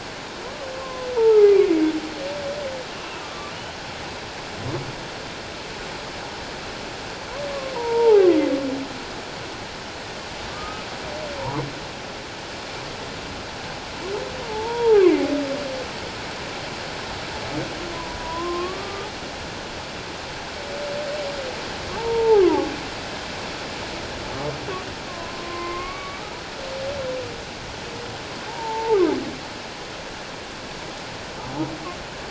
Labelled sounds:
0.8	1.6	humpback whale, 0.78 to 1.4 kHz
3.2	3.5	humpback whale, 1.1 to 1.2 kHz
7.5	8.4	humpback whale, 0.78 to 1.3 kHz
10.5	10.9	humpback whale, 1.1 to 1.3 kHz
14.4	15.0	humpback whale, 0.78 to 1.0 kHz
18.2	19.1	humpback whale, 0.94 to 1.2 kHz
22.0	22.7	humpback whale, 0.78 to 1.3 kHz
25.1	26.3	humpback whale, 0.97 to 2.3 kHz
28.5	29.0	humpback whale, 0.81 to 1.0 kHz

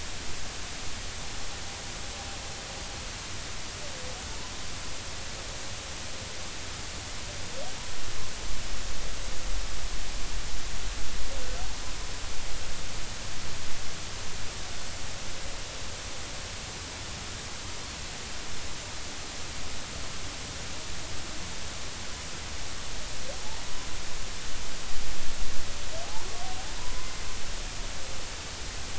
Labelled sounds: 26.8	27.1	humpback whale, 0.96 to 1.1 kHz

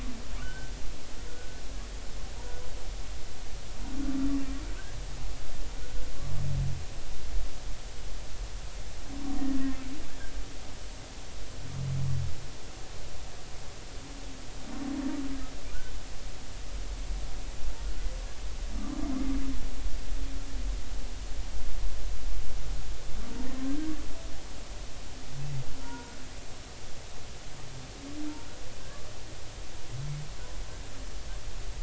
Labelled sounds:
0.4	0.7	humpback whale, 1.4 to 1.6 kHz
1.3	1.6	humpback whale, 1.4 to 1.5 kHz
25.8	26.2	humpback whale, 0.90 to 1.5 kHz

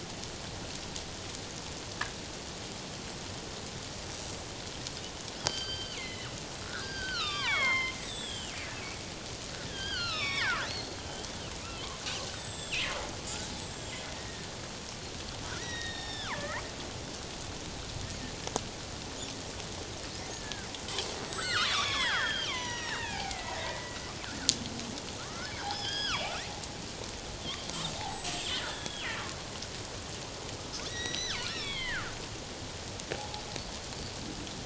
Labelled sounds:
5.4	6.3	killer whale, northern resident, G clan, 1.5 to 4.8 kHz
6.6	8.6	killer whale, northern resident, G clan, 0.81 to 7.8 kHz
9.7	11.0	killer whale, northern resident, G clan, 0.81 to 5.6 kHz
12.2	12.9	killer whale, northern resident, G clan, 1.7 to 8.0 kHz
13.4	14.5	killer whale, northern resident, G clan, 1.7 to 8.0 kHz
15.6	16.6	killer whale, northern resident, G clan, 0.88 to 5.5 kHz
20.3	20.7	killer whale, northern resident, G clan, 1.4 to 1.8 kHz
21.0	24.0	killer whale, northern resident, G clan, 0.78 to 8.0 kHz
25.2	26.3	killer whale, northern resident, G clan, 0.78 to 5.4 kHz
27.5	29.2	killer whale, northern resident, G clan, 0.78 to 8.0 kHz
30.9	32.2	killer whale, northern resident, G clan, 0.91 to 6.2 kHz
33.1	33.4	killer whale, northern resident, G clan, 0.78 to 0.91 kHz

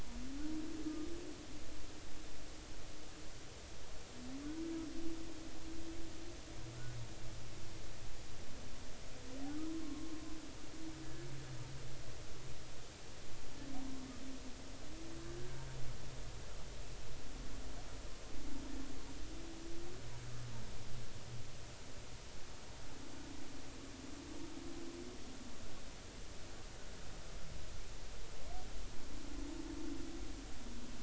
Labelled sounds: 9.8	10.1	humpback whale, 1.0 to 1.1 kHz

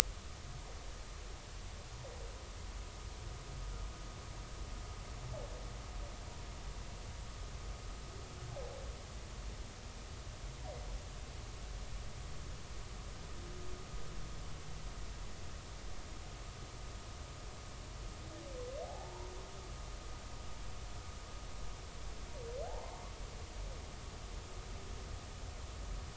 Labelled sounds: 18.8	19.3	humpback whale, 0.80 to 1.0 kHz
22.6	22.9	humpback whale, 0.80 to 0.99 kHz

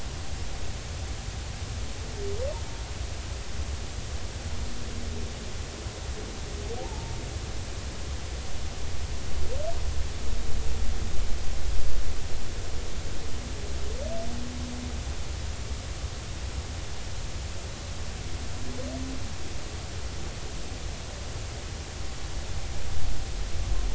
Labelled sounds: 6.8	7.2	humpback whale, 0.80 to 0.96 kHz

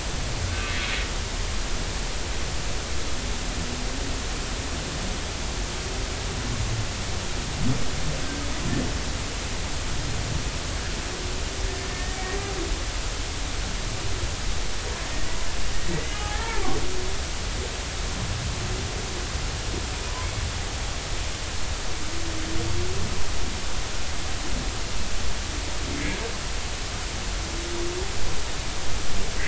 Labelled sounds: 0.5	0.7	humpback whale, 1.5 to 1.6 kHz
11.8	12.2	humpback whale, 1.8 to 1.9 kHz
15.9	16.8	humpback whale, 0.80 to 3.0 kHz

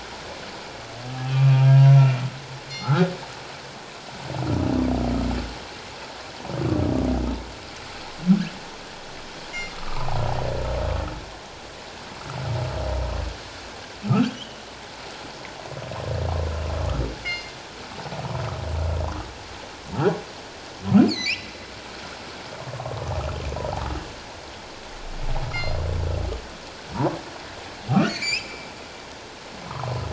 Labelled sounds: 1.3	1.9	humpback whale, 1.2 to 2.7 kHz
2.7	3.0	killer whale, northern resident, G clan, call N24ii, 4.2 to 5.1 kHz
2.8	3.1	humpback whale, 1.2 to 1.7 kHz
9.7	10.2	humpback whale, 0.78 to 1.4 kHz
14.1	14.6	humpback whale, 1.2 to 3.4 kHz
17.2	17.5	killer whale, northern resident, G clan, call N24ii, 2.0 to 4.4 kHz
21.0	21.5	humpback whale, 1.9 to 4.7 kHz
25.5	25.8	killer whale, northern resident, G clan, call N24ii, 4.1 to 5.0 kHz
27.9	28.7	humpback whale, 2.0 to 5.3 kHz
29.6	29.9	humpback whale, 0.78 to 1.4 kHz

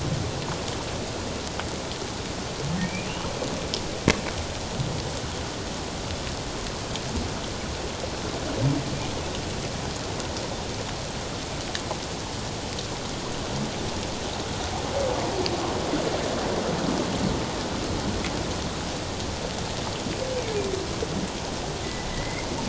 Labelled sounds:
2.8	3.1	humpback whale, 2.2 to 2.5 kHz
22.1	22.5	humpback whale, 1.8 to 2.2 kHz

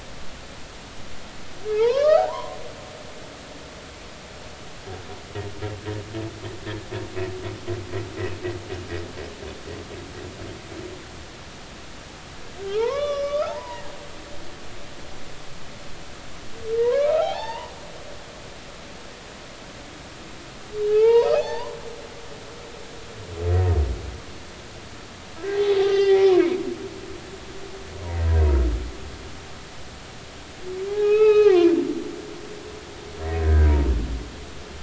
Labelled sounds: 1.7	2.6	humpback whale, 0.80 to 4.6 kHz
12.7	13.9	humpback whale, 0.80 to 5.9 kHz
16.8	17.7	humpback whale, 0.80 to 4.6 kHz
20.9	21.8	humpback whale, 0.80 to 5.4 kHz
25.5	26.3	humpback whale, 0.80 to 5.2 kHz
30.9	31.7	humpback whale, 0.80 to 5.3 kHz
33.4	33.9	humpback whale, 0.90 to 1.8 kHz

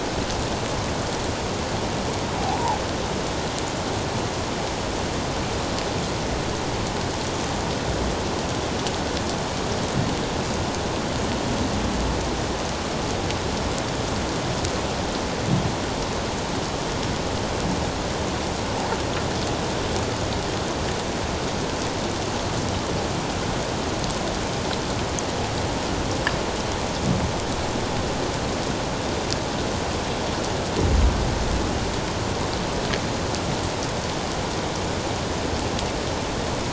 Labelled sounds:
2.4	2.8	humpback whale, 0.78 to 1.0 kHz

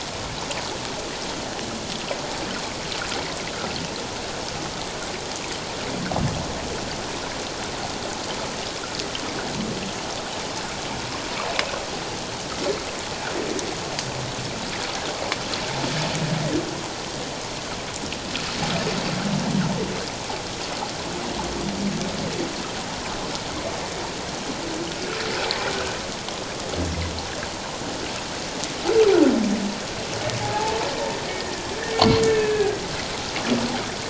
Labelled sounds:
30.4	30.8	humpback whale, 0.78 to 0.94 kHz
32.2	32.8	humpback whale, 1.5 to 1.8 kHz

